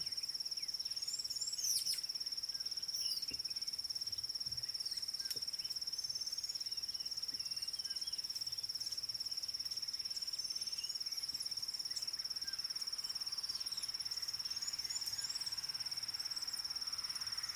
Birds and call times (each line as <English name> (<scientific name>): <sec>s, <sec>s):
Red-cheeked Cordonbleu (Uraeginthus bengalus): 1.2s, 15.0s
White Helmetshrike (Prionops plumatus): 1.7s
Dideric Cuckoo (Chrysococcyx caprius): 7.9s